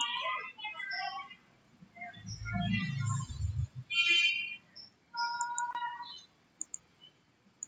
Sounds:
Sigh